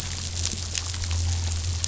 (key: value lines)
label: anthrophony, boat engine
recorder: SoundTrap 500